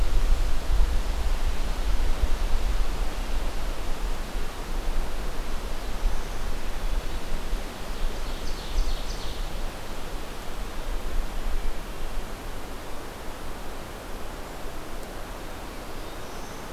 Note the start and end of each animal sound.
5.6s-6.6s: Northern Parula (Setophaga americana)
7.7s-9.6s: Ovenbird (Seiurus aurocapilla)
15.3s-16.7s: Black-throated Blue Warbler (Setophaga caerulescens)

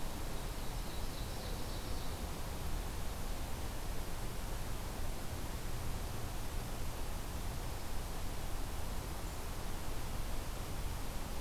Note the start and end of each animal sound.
0.2s-2.2s: Ovenbird (Seiurus aurocapilla)

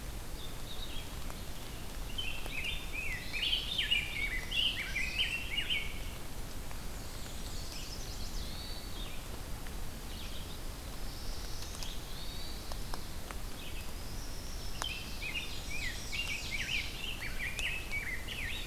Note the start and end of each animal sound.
0.0s-18.7s: Red-eyed Vireo (Vireo olivaceus)
1.8s-5.9s: Rose-breasted Grosbeak (Pheucticus ludovicianus)
3.0s-3.7s: Hermit Thrush (Catharus guttatus)
4.0s-5.4s: Common Yellowthroat (Geothlypis trichas)
6.7s-7.9s: Black-and-white Warbler (Mniotilta varia)
7.4s-8.5s: Chestnut-sided Warbler (Setophaga pensylvanica)
8.2s-9.0s: Hermit Thrush (Catharus guttatus)
10.7s-12.0s: Black-throated Blue Warbler (Setophaga caerulescens)
11.9s-12.6s: Hermit Thrush (Catharus guttatus)
13.9s-15.0s: unidentified call
14.7s-18.7s: Rose-breasted Grosbeak (Pheucticus ludovicianus)
14.8s-17.1s: Ovenbird (Seiurus aurocapilla)
15.4s-16.9s: Black-and-white Warbler (Mniotilta varia)

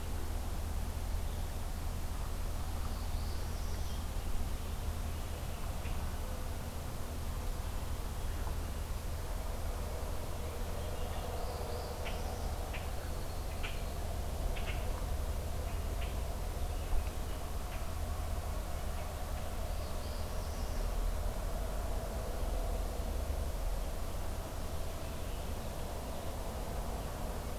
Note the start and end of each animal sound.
2.8s-4.0s: Northern Parula (Setophaga americana)
5.7s-6.0s: Common Grackle (Quiscalus quiscula)
10.3s-11.3s: Hermit Thrush (Catharus guttatus)
11.3s-12.5s: Northern Parula (Setophaga americana)
12.0s-17.8s: Common Grackle (Quiscalus quiscula)
19.6s-20.9s: Northern Parula (Setophaga americana)

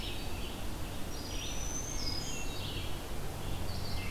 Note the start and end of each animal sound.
0.0s-0.7s: Hermit Thrush (Catharus guttatus)
0.0s-4.1s: Red-eyed Vireo (Vireo olivaceus)
0.9s-2.5s: Black-throated Green Warbler (Setophaga virens)
1.9s-3.0s: Hermit Thrush (Catharus guttatus)

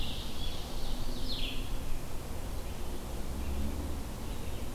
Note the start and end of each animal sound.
0.0s-1.6s: Ovenbird (Seiurus aurocapilla)
0.9s-4.7s: Red-eyed Vireo (Vireo olivaceus)

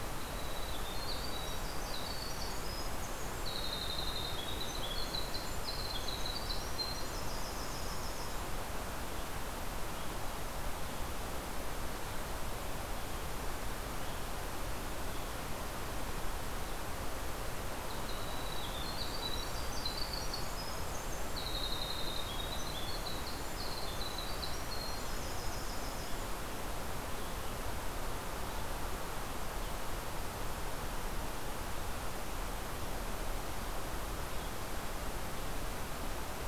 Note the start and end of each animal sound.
0.0s-8.7s: Winter Wren (Troglodytes hiemalis)
17.6s-26.5s: Winter Wren (Troglodytes hiemalis)

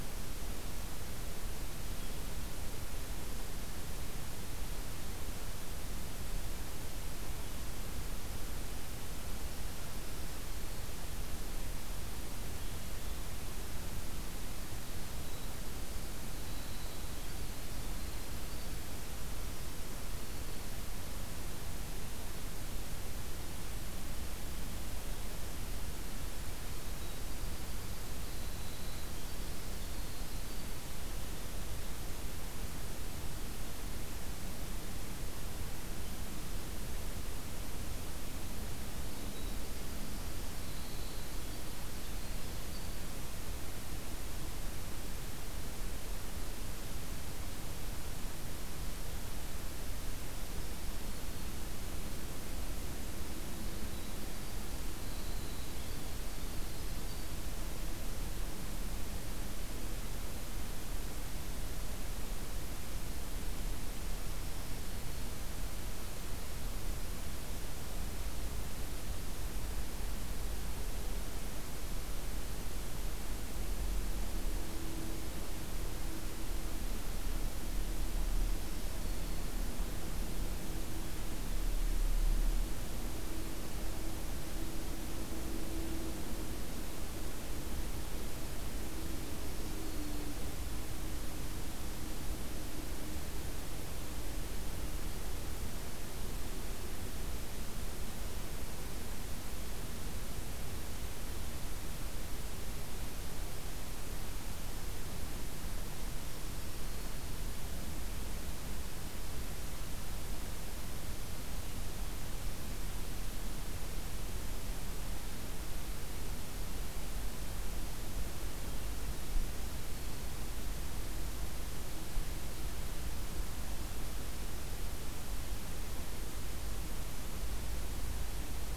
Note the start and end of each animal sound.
14.8s-20.7s: Winter Wren (Troglodytes hiemalis)
26.9s-31.0s: Winter Wren (Troglodytes hiemalis)
39.0s-43.1s: Winter Wren (Troglodytes hiemalis)
50.1s-51.7s: Black-throated Green Warbler (Setophaga virens)
53.4s-57.3s: Winter Wren (Troglodytes hiemalis)
64.4s-65.4s: Black-throated Green Warbler (Setophaga virens)
78.4s-79.6s: Black-throated Green Warbler (Setophaga virens)
89.2s-90.6s: Black-throated Green Warbler (Setophaga virens)
106.2s-107.4s: Black-throated Green Warbler (Setophaga virens)

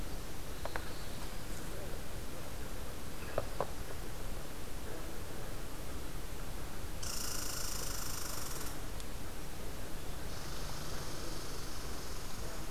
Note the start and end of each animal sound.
0.4s-1.6s: Black-throated Blue Warbler (Setophaga caerulescens)
6.9s-8.9s: Red Squirrel (Tamiasciurus hudsonicus)
10.2s-12.7s: Red Squirrel (Tamiasciurus hudsonicus)

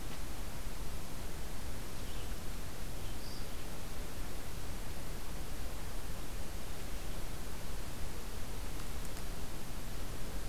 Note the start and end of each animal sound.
2.6s-3.5s: Red-eyed Vireo (Vireo olivaceus)

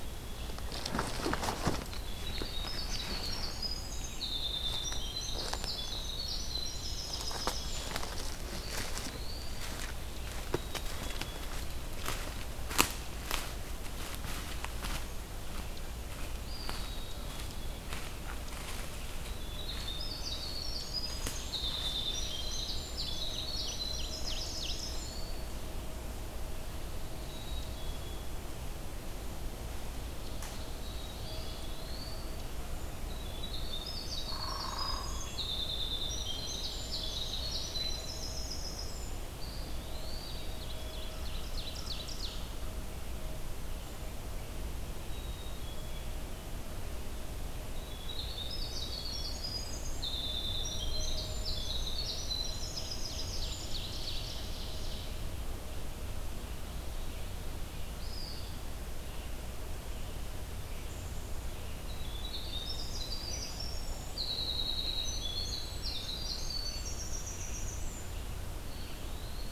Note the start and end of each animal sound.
0.0s-0.7s: Black-capped Chickadee (Poecile atricapillus)
0.0s-3.0s: Red-eyed Vireo (Vireo olivaceus)
2.0s-8.1s: Winter Wren (Troglodytes hiemalis)
5.9s-8.3s: Ovenbird (Seiurus aurocapilla)
8.5s-10.1s: Eastern Wood-Pewee (Contopus virens)
10.4s-11.6s: Black-capped Chickadee (Poecile atricapillus)
16.2s-17.0s: Eastern Wood-Pewee (Contopus virens)
16.7s-17.8s: Black-capped Chickadee (Poecile atricapillus)
18.8s-25.4s: Winter Wren (Troglodytes hiemalis)
22.7s-25.0s: Ovenbird (Seiurus aurocapilla)
24.2s-25.5s: Eastern Wood-Pewee (Contopus virens)
27.2s-28.3s: Black-capped Chickadee (Poecile atricapillus)
30.8s-31.9s: Black-capped Chickadee (Poecile atricapillus)
31.1s-32.6s: Eastern Wood-Pewee (Contopus virens)
33.0s-39.2s: Winter Wren (Troglodytes hiemalis)
34.1s-35.5s: Hairy Woodpecker (Dryobates villosus)
35.7s-37.9s: Ovenbird (Seiurus aurocapilla)
39.3s-40.6s: Eastern Wood-Pewee (Contopus virens)
40.2s-42.8s: Ovenbird (Seiurus aurocapilla)
44.9s-46.3s: Black-capped Chickadee (Poecile atricapillus)
47.7s-53.8s: Winter Wren (Troglodytes hiemalis)
52.6s-55.2s: Ovenbird (Seiurus aurocapilla)
55.6s-69.5s: Red-eyed Vireo (Vireo olivaceus)
57.9s-58.6s: Eastern Wood-Pewee (Contopus virens)
61.8s-68.3s: Winter Wren (Troglodytes hiemalis)
68.6s-69.5s: Eastern Wood-Pewee (Contopus virens)

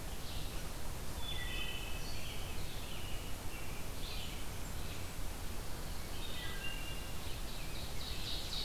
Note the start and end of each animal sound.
0.0s-8.6s: Red-eyed Vireo (Vireo olivaceus)
1.1s-2.2s: Wood Thrush (Hylocichla mustelina)
2.2s-5.2s: American Robin (Turdus migratorius)
4.0s-5.3s: Blackburnian Warbler (Setophaga fusca)
5.6s-6.8s: Pine Warbler (Setophaga pinus)
6.2s-7.4s: Wood Thrush (Hylocichla mustelina)
7.2s-8.6s: American Robin (Turdus migratorius)
7.2s-8.6s: Ovenbird (Seiurus aurocapilla)

